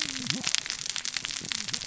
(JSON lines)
{"label": "biophony, cascading saw", "recorder": "SoundTrap 600 or HydroMoth"}